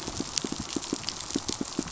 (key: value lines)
label: biophony, pulse
recorder: SoundTrap 500